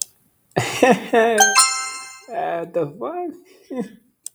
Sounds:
Laughter